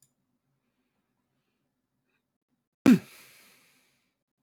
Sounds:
Sneeze